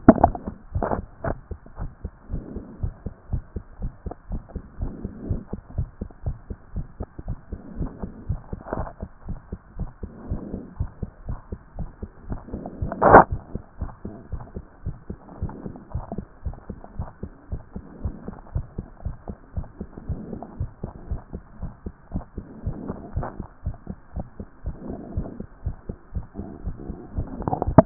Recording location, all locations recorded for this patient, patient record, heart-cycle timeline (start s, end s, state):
tricuspid valve (TV)
aortic valve (AV)+pulmonary valve (PV)+tricuspid valve (TV)+mitral valve (MV)
#Age: Child
#Sex: Male
#Height: 115.0 cm
#Weight: 22.8 kg
#Pregnancy status: False
#Murmur: Absent
#Murmur locations: nan
#Most audible location: nan
#Systolic murmur timing: nan
#Systolic murmur shape: nan
#Systolic murmur grading: nan
#Systolic murmur pitch: nan
#Systolic murmur quality: nan
#Diastolic murmur timing: nan
#Diastolic murmur shape: nan
#Diastolic murmur grading: nan
#Diastolic murmur pitch: nan
#Diastolic murmur quality: nan
#Outcome: Normal
#Campaign: 2014 screening campaign
0.00	0.13	unannotated
0.13	0.19	diastole
0.19	0.34	S1
0.34	0.46	systole
0.46	0.54	S2
0.54	0.74	diastole
0.74	0.86	S1
0.86	0.96	systole
0.96	1.04	S2
1.04	1.26	diastole
1.26	1.38	S1
1.38	1.50	systole
1.50	1.58	S2
1.58	1.78	diastole
1.78	1.90	S1
1.90	2.02	systole
2.02	2.12	S2
2.12	2.30	diastole
2.30	2.44	S1
2.44	2.54	systole
2.54	2.64	S2
2.64	2.82	diastole
2.82	2.94	S1
2.94	3.04	systole
3.04	3.14	S2
3.14	3.32	diastole
3.32	3.42	S1
3.42	3.54	systole
3.54	3.64	S2
3.64	3.80	diastole
3.80	3.92	S1
3.92	4.04	systole
4.04	4.14	S2
4.14	4.30	diastole
4.30	4.42	S1
4.42	4.54	systole
4.54	4.62	S2
4.62	4.80	diastole
4.80	4.92	S1
4.92	5.02	systole
5.02	5.12	S2
5.12	5.28	diastole
5.28	5.40	S1
5.40	5.52	systole
5.52	5.60	S2
5.60	5.76	diastole
5.76	5.88	S1
5.88	6.00	systole
6.00	6.08	S2
6.08	6.26	diastole
6.26	6.36	S1
6.36	6.48	systole
6.48	6.56	S2
6.56	6.74	diastole
6.74	6.86	S1
6.86	6.98	systole
6.98	7.08	S2
7.08	7.26	diastole
7.26	7.38	S1
7.38	7.50	systole
7.50	7.60	S2
7.60	7.78	diastole
7.78	7.90	S1
7.90	8.02	systole
8.02	8.10	S2
8.10	8.28	diastole
8.28	8.40	S1
8.40	8.52	systole
8.52	8.60	S2
8.60	8.76	diastole
8.76	8.88	S1
8.88	9.00	systole
9.00	9.10	S2
9.10	9.28	diastole
9.28	9.38	S1
9.38	9.50	systole
9.50	9.60	S2
9.60	9.78	diastole
9.78	9.90	S1
9.90	10.02	systole
10.02	10.10	S2
10.10	10.28	diastole
10.28	10.42	S1
10.42	10.52	systole
10.52	10.62	S2
10.62	10.78	diastole
10.78	10.90	S1
10.90	11.00	systole
11.00	11.10	S2
11.10	11.28	diastole
11.28	11.38	S1
11.38	11.50	systole
11.50	11.60	S2
11.60	11.78	diastole
11.78	11.90	S1
11.90	12.02	systole
12.02	12.10	S2
12.10	12.28	diastole
12.28	12.40	S1
12.40	12.52	systole
12.52	12.64	S2
12.64	12.84	diastole
12.84	12.92	S1
12.92	13.02	systole
13.02	13.20	S2
13.20	13.30	diastole
13.30	13.38	S1
13.38	13.52	systole
13.52	13.58	S2
13.58	13.80	diastole
13.80	13.92	S1
13.92	14.06	systole
14.06	14.14	S2
14.14	14.32	diastole
14.32	14.44	S1
14.44	14.56	systole
14.56	14.64	S2
14.64	14.84	diastole
14.84	14.96	S1
14.96	15.08	systole
15.08	15.18	S2
15.18	15.40	diastole
15.40	15.52	S1
15.52	15.64	systole
15.64	15.74	S2
15.74	15.94	diastole
15.94	16.04	S1
16.04	16.16	systole
16.16	16.24	S2
16.24	16.44	diastole
16.44	16.56	S1
16.56	16.68	systole
16.68	16.78	S2
16.78	16.98	diastole
16.98	17.08	S1
17.08	17.22	systole
17.22	17.32	S2
17.32	17.50	diastole
17.50	17.62	S1
17.62	17.74	systole
17.74	17.84	S2
17.84	18.02	diastole
18.02	18.14	S1
18.14	18.26	systole
18.26	18.36	S2
18.36	18.54	diastole
18.54	18.66	S1
18.66	18.78	systole
18.78	18.86	S2
18.86	19.04	diastole
19.04	19.16	S1
19.16	19.28	systole
19.28	19.36	S2
19.36	19.56	diastole
19.56	19.66	S1
19.66	19.80	systole
19.80	19.88	S2
19.88	20.08	diastole
20.08	20.20	S1
20.20	20.32	systole
20.32	20.40	S2
20.40	20.58	diastole
20.58	20.70	S1
20.70	20.82	systole
20.82	20.92	S2
20.92	21.10	diastole
21.10	21.20	S1
21.20	21.34	systole
21.34	21.42	S2
21.42	21.60	diastole
21.60	21.72	S1
21.72	21.84	systole
21.84	21.94	S2
21.94	22.12	diastole
22.12	22.24	S1
22.24	22.36	systole
22.36	22.46	S2
22.46	22.64	diastole
22.64	22.76	S1
22.76	22.88	systole
22.88	22.96	S2
22.96	23.14	diastole
23.14	23.28	S1
23.28	23.38	systole
23.38	23.46	S2
23.46	23.64	diastole
23.64	23.76	S1
23.76	23.88	systole
23.88	23.96	S2
23.96	24.16	diastole
24.16	24.26	S1
24.26	24.38	systole
24.38	24.48	S2
24.48	24.64	diastole
24.64	24.76	S1
24.76	24.88	systole
24.88	24.98	S2
24.98	25.16	diastole
25.16	25.28	S1
25.28	25.38	systole
25.38	25.46	S2
25.46	25.64	diastole
25.64	25.76	S1
25.76	25.88	systole
25.88	25.96	S2
25.96	26.14	diastole
26.14	26.26	S1
26.26	26.38	systole
26.38	26.48	S2
26.48	26.64	diastole
26.64	26.76	S1
26.76	26.88	systole
26.88	26.98	S2
26.98	27.16	diastole
27.16	27.28	S1
27.28	27.38	systole
27.38	27.48	S2
27.48	27.68	diastole
27.68	27.86	unannotated